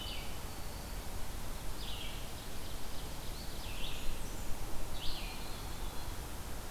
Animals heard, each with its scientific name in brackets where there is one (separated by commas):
Blackburnian Warbler (Setophaga fusca), Red-eyed Vireo (Vireo olivaceus), Eastern Wood-Pewee (Contopus virens), Black-throated Green Warbler (Setophaga virens), Ovenbird (Seiurus aurocapilla)